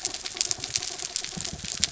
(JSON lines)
{"label": "anthrophony, mechanical", "recorder": "SoundTrap 300"}